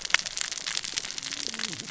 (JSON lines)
{"label": "biophony, cascading saw", "recorder": "SoundTrap 600 or HydroMoth"}